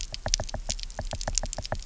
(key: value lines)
label: biophony, knock
recorder: SoundTrap 300